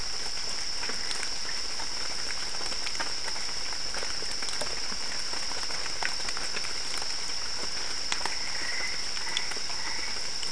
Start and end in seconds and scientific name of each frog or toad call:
8.2	10.4	Boana albopunctata